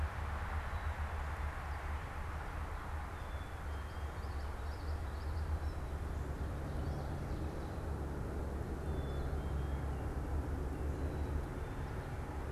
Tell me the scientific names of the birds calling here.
Poecile atricapillus, Geothlypis trichas